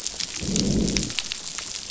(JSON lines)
{"label": "biophony, growl", "recorder": "SoundTrap 500"}